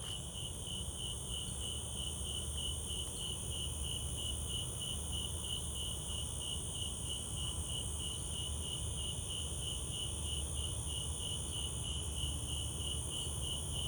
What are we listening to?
Oecanthus fultoni, an orthopteran